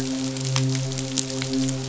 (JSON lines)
{"label": "biophony, midshipman", "recorder": "SoundTrap 500"}